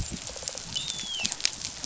{"label": "biophony, rattle response", "recorder": "SoundTrap 500"}
{"label": "biophony, dolphin", "recorder": "SoundTrap 500"}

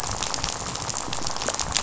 {"label": "biophony, rattle", "recorder": "SoundTrap 500"}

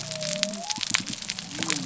{"label": "biophony", "recorder": "SoundTrap 300"}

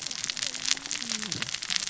{"label": "biophony, cascading saw", "recorder": "SoundTrap 600 or HydroMoth"}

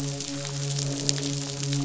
{"label": "biophony, midshipman", "recorder": "SoundTrap 500"}
{"label": "biophony, croak", "recorder": "SoundTrap 500"}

